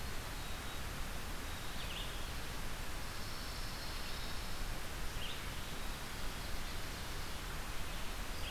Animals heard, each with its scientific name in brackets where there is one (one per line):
Black-capped Chickadee (Poecile atricapillus)
Pine Warbler (Setophaga pinus)
Red-eyed Vireo (Vireo olivaceus)